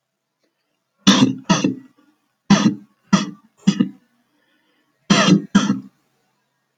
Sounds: Cough